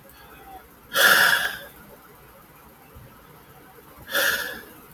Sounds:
Sigh